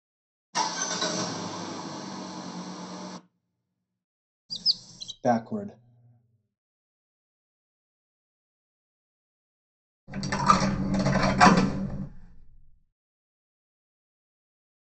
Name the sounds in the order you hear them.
car, chirp, speech, coin